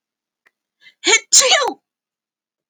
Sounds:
Sneeze